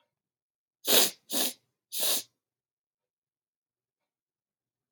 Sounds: Sniff